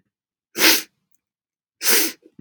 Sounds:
Sniff